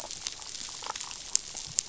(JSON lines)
{"label": "biophony, damselfish", "recorder": "SoundTrap 500"}